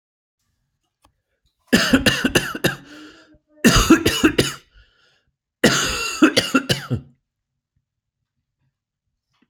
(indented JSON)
{
  "expert_labels": [
    {
      "quality": "good",
      "cough_type": "dry",
      "dyspnea": false,
      "wheezing": false,
      "stridor": false,
      "choking": false,
      "congestion": false,
      "nothing": true,
      "diagnosis": "upper respiratory tract infection",
      "severity": "severe"
    }
  ],
  "age": 44,
  "gender": "male",
  "respiratory_condition": true,
  "fever_muscle_pain": false,
  "status": "symptomatic"
}